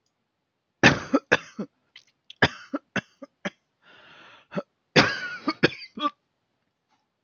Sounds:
Cough